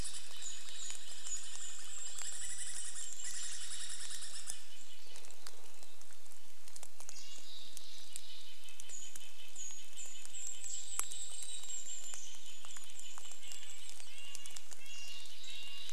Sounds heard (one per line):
Douglas squirrel rattle
Mountain Chickadee call
Red-breasted Nuthatch song
Golden-crowned Kinglet song
woodpecker drumming
rain